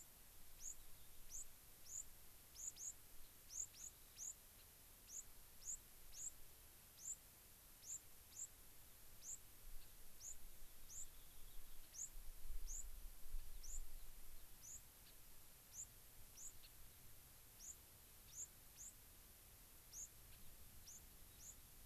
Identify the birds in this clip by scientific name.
Zonotrichia leucophrys, Leucosticte tephrocotis, Salpinctes obsoletus